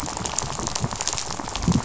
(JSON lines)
{"label": "biophony, rattle", "recorder": "SoundTrap 500"}